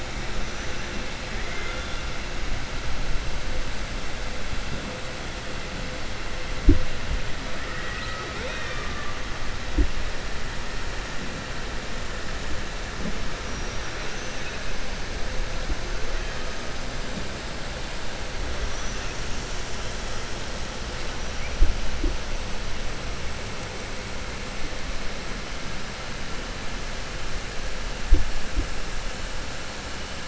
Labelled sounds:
1.3	2.0	killer whale, 1.4 to 3.5 kHz
13.4	14.4	killer whale, 4.7 to 6.4 kHz
18.6	19.7	killer whale, 5.4 to 7.5 kHz

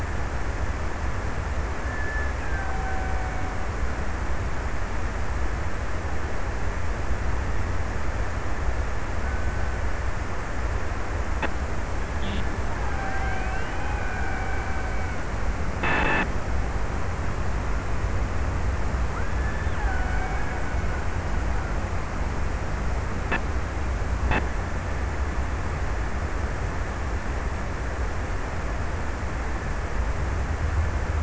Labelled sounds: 1.5	4.5	killer whale, Bigg's (transient), 0.60 to 2.5 kHz
8.6	10.9	killer whale, Bigg's (transient), 1.2 to 1.7 kHz
12.1	15.4	killer whale, Bigg's (transient), 0.49 to 2.8 kHz
19.1	21.8	killer whale, Bigg's (transient), 0.52 to 2.4 kHz

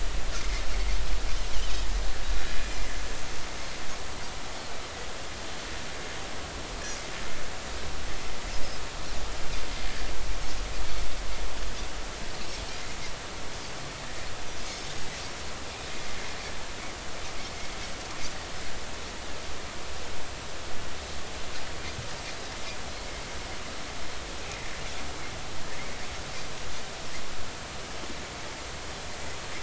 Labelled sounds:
23.0	23.2	Pacific white-sided dolphin, 2.0 to 2.2 kHz

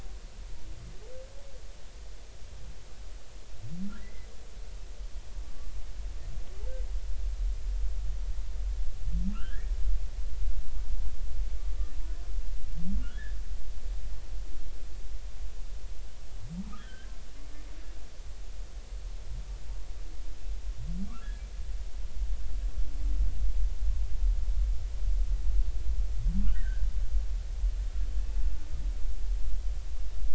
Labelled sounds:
4.0	4.3	humpback whale, 1.8 to 2.1 kHz
9.3	9.7	humpback whale, 1.2 to 2.0 kHz
13.1	13.4	humpback whale, 1.5 to 1.9 kHz
16.8	17.1	humpback whale, 1.5 to 3.4 kHz
26.4	26.9	humpback whale, 1.3 to 2.0 kHz

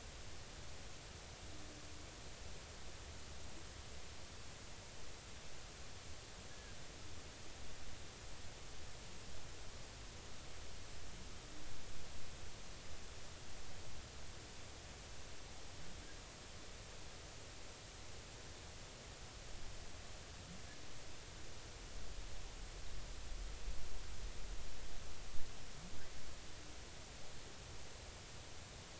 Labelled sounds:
6.5	6.8	killer whale, Bigg's (transient), 1.6 to 1.8 kHz

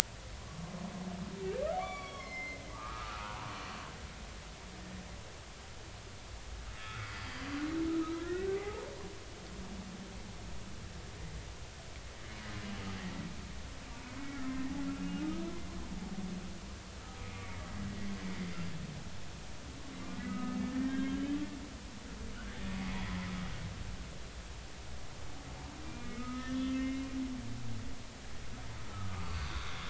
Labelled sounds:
1.8	3.5	humpback whale, 0.80 to 5.8 kHz
6.8	7.1	humpback whale, 1.2 to 1.5 kHz
8.2	9.6	humpback whale, 0.80 to 2.0 kHz
14.2	14.5	humpback whale, 1.2 to 2.3 kHz
15.2	15.5	humpback whale, 1.2 to 1.3 kHz
17.2	17.6	humpback whale, 2.1 to 2.4 kHz
20.2	21.4	humpback whale, 1.2 to 3.3 kHz
26.0	27.1	humpback whale, 1.2 to 2.2 kHz
28.9	29.8	humpback whale, 1.1 to 4.7 kHz

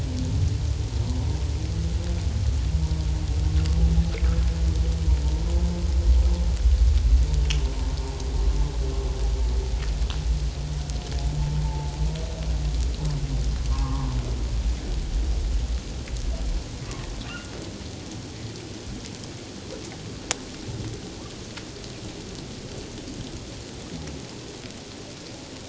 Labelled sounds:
11.6	12.0	humpback whale, 0.81 to 0.97 kHz
13.7	14.1	humpback whale, 0.91 to 1.2 kHz

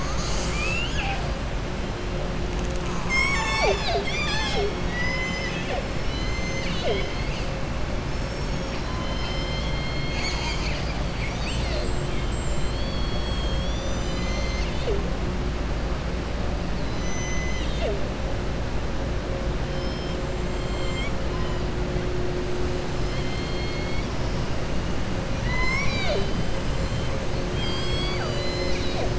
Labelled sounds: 4.8	5.8	killer whale, southern resident, 0.54 to 7.2 kHz
11.1	12.8	killer whale, southern resident, 0.67 to 8.0 kHz
19.7	21.2	killer whale, southern resident, 1.2 to 8.0 kHz
22.9	24.1	killer whale, southern resident, 2.1 to 5.4 kHz
25.3	26.5	killer whale, southern resident, 0.45 to 7.4 kHz
27.4	29.1	killer whale, southern resident, 0.59 to 7.1 kHz

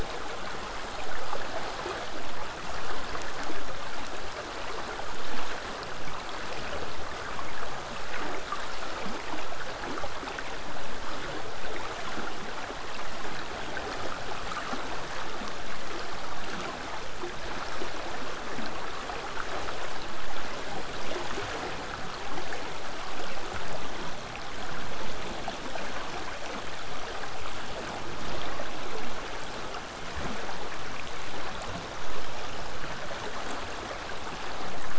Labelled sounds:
30.0	34.9	vessel noise, 0 to 8.0 kHz

